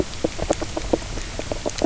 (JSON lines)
{"label": "biophony, knock croak", "recorder": "SoundTrap 300"}